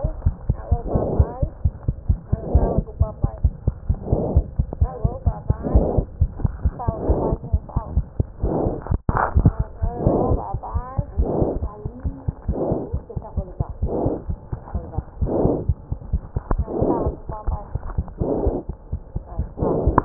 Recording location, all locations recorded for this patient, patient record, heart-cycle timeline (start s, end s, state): mitral valve (MV)
aortic valve (AV)+mitral valve (MV)
#Age: Child
#Sex: Female
#Height: 67.0 cm
#Weight: 6.88 kg
#Pregnancy status: False
#Murmur: Absent
#Murmur locations: nan
#Most audible location: nan
#Systolic murmur timing: nan
#Systolic murmur shape: nan
#Systolic murmur grading: nan
#Systolic murmur pitch: nan
#Systolic murmur quality: nan
#Diastolic murmur timing: nan
#Diastolic murmur shape: nan
#Diastolic murmur grading: nan
#Diastolic murmur pitch: nan
#Diastolic murmur quality: nan
#Outcome: Abnormal
#Campaign: 2015 screening campaign
0.00	11.17	unannotated
11.17	11.27	S1
11.27	11.40	systole
11.40	11.47	S2
11.47	11.61	diastole
11.61	11.70	S1
11.70	11.83	systole
11.83	11.89	S2
11.89	12.03	diastole
12.03	12.16	S1
12.16	12.27	systole
12.27	12.36	S2
12.36	12.47	diastole
12.47	12.56	S1
12.56	12.70	systole
12.70	12.80	S2
12.80	12.92	diastole
12.92	13.00	S1
13.00	13.14	systole
13.14	13.20	S2
13.20	13.35	diastole
13.35	13.44	S1
13.44	13.59	systole
13.59	13.66	S2
13.66	13.81	diastole
13.81	13.91	S1
13.91	14.05	systole
14.05	14.10	S2
14.10	14.28	diastole
14.28	14.36	S1
14.36	14.51	systole
14.51	14.58	S2
14.58	14.72	diastole
14.72	14.84	S1
14.84	14.96	systole
14.96	15.04	S2
15.04	15.20	diastole
15.20	15.32	S1
15.32	15.42	systole
15.42	15.56	S2
15.56	15.66	diastole
15.66	15.74	S1
15.74	15.90	systole
15.90	15.98	S2
15.98	16.12	diastole
16.12	16.22	S1
16.22	16.34	systole
16.34	16.44	S2
16.44	20.05	unannotated